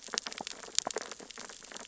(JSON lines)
{"label": "biophony, sea urchins (Echinidae)", "recorder": "SoundTrap 600 or HydroMoth"}